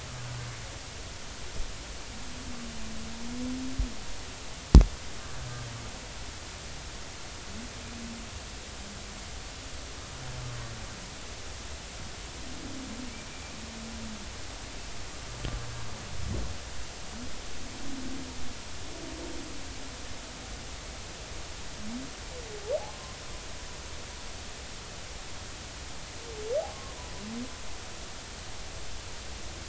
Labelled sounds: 22.9	23.1	humpback whale, 0.99 to 1.1 kHz
26.7	26.9	humpback whale, 1.0 to 1.1 kHz

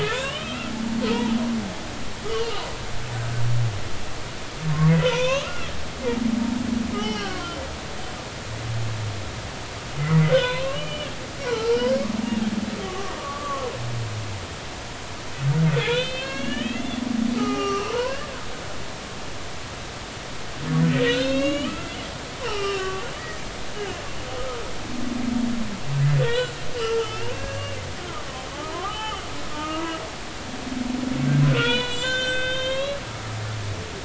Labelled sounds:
0.0	1.4	humpback whale, 0.83 to 3.3 kHz
5.0	5.7	humpback whale, 0.90 to 3.5 kHz
6.2	7.6	humpback whale, 0.80 to 5.6 kHz
10.3	11.9	humpback whale, 0.83 to 3.6 kHz
12.8	13.7	humpback whale, 0.93 to 1.2 kHz
15.8	18.3	humpback whale, 0.80 to 5.7 kHz
21.0	23.4	humpback whale, 0.80 to 7.0 kHz
26.2	27.8	humpback whale, 0.90 to 5.1 kHz
28.5	29.2	humpback whale, 0.80 to 3.1 kHz
29.5	30.0	humpback whale, 1.2 to 1.3 kHz
31.5	33.0	humpback whale, 0.90 to 7.5 kHz

